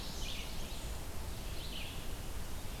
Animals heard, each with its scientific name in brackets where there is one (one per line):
Chestnut-sided Warbler (Setophaga pensylvanica)
Red-eyed Vireo (Vireo olivaceus)